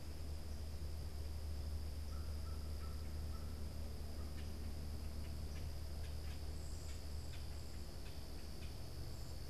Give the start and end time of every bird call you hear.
[1.84, 4.45] American Crow (Corvus brachyrhynchos)
[3.94, 9.50] Common Grackle (Quiscalus quiscula)

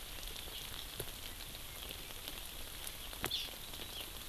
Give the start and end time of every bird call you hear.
[3.29, 3.50] Hawaii Amakihi (Chlorodrepanis virens)

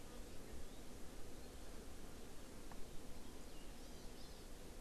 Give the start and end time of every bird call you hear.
[3.77, 4.47] Hawaii Amakihi (Chlorodrepanis virens)

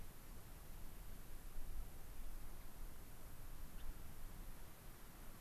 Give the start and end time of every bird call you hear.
[3.70, 3.90] Gray-crowned Rosy-Finch (Leucosticte tephrocotis)

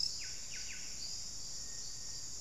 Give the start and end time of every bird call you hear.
[0.00, 1.10] Buff-breasted Wren (Cantorchilus leucotis)
[1.50, 2.40] Little Tinamou (Crypturellus soui)

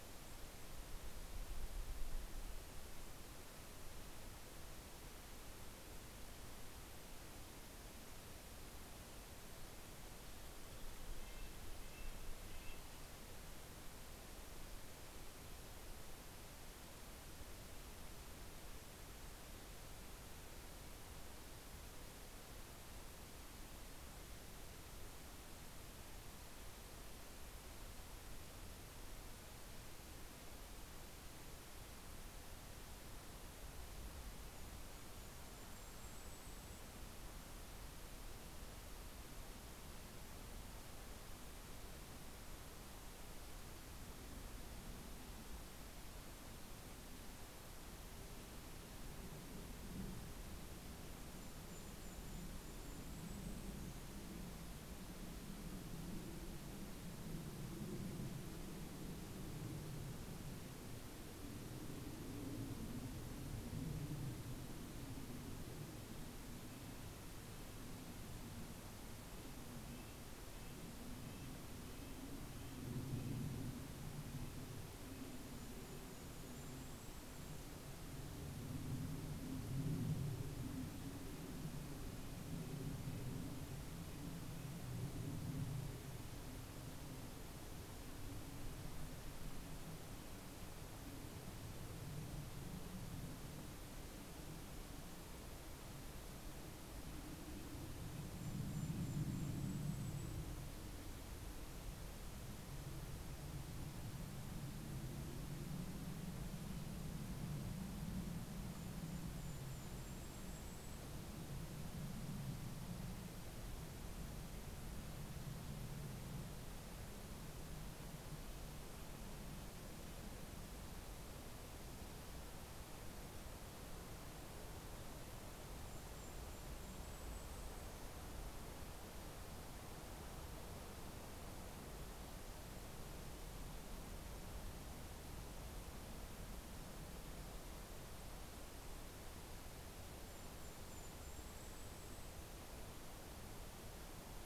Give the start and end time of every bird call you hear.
[0.00, 1.02] Golden-crowned Kinglet (Regulus satrapa)
[10.52, 13.42] Red-breasted Nuthatch (Sitta canadensis)
[34.02, 37.52] Golden-crowned Kinglet (Regulus satrapa)
[50.52, 54.42] Golden-crowned Kinglet (Regulus satrapa)
[67.02, 77.02] Red-breasted Nuthatch (Sitta canadensis)
[74.82, 78.32] Golden-crowned Kinglet (Regulus satrapa)
[80.32, 85.62] Red-breasted Nuthatch (Sitta canadensis)
[98.12, 100.82] Golden-crowned Kinglet (Regulus satrapa)
[108.32, 111.52] Golden-crowned Kinglet (Regulus satrapa)
[124.42, 128.32] Golden-crowned Kinglet (Regulus satrapa)
[139.12, 143.02] Golden-crowned Kinglet (Regulus satrapa)

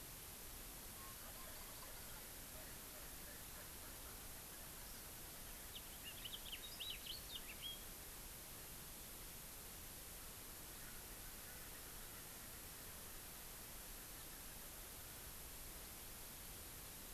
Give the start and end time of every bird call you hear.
[5.70, 7.89] House Finch (Haemorhous mexicanus)

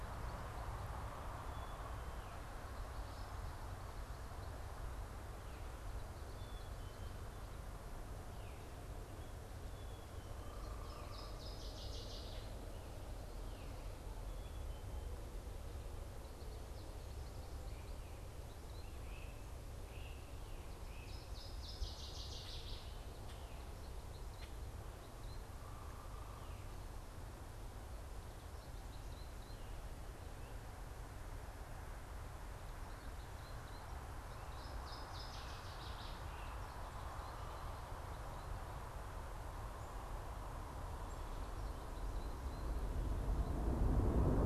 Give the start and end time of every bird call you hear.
[0.00, 15.55] Black-capped Chickadee (Poecile atricapillus)
[0.00, 25.75] American Goldfinch (Spinus tristis)
[10.05, 11.45] unidentified bird
[10.55, 12.65] Northern Waterthrush (Parkesia noveboracensis)
[18.75, 21.35] Great Crested Flycatcher (Myiarchus crinitus)
[20.75, 23.05] Northern Waterthrush (Parkesia noveboracensis)
[22.25, 24.65] Common Grackle (Quiscalus quiscula)
[25.45, 26.65] unidentified bird
[28.25, 44.45] American Goldfinch (Spinus tristis)
[34.15, 36.25] Northern Waterthrush (Parkesia noveboracensis)
[35.15, 36.75] Great Crested Flycatcher (Myiarchus crinitus)

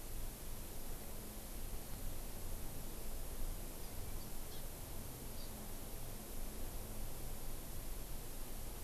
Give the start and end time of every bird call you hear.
[4.43, 4.63] Hawaii Amakihi (Chlorodrepanis virens)
[5.33, 5.53] Hawaii Amakihi (Chlorodrepanis virens)

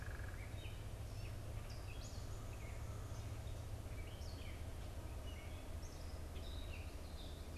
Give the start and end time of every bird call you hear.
[0.00, 0.58] unidentified bird
[0.00, 7.57] Gray Catbird (Dumetella carolinensis)

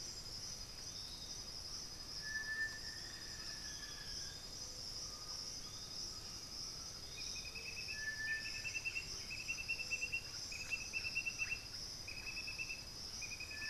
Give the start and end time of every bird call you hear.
[0.00, 7.75] Piratic Flycatcher (Legatus leucophaius)
[2.35, 4.55] Black-faced Antthrush (Formicarius analis)
[4.85, 7.15] Undulated Tinamou (Crypturellus undulatus)
[7.75, 9.65] White-winged Becard (Pachyramphus polychopterus)
[8.95, 13.70] Russet-backed Oropendola (Psarocolius angustifrons)

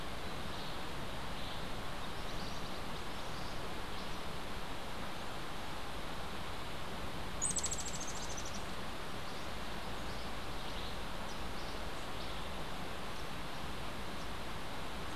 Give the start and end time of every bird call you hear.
[7.39, 8.69] Blue-vented Hummingbird (Saucerottia hoffmanni)

